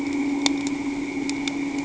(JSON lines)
{"label": "anthrophony, boat engine", "recorder": "HydroMoth"}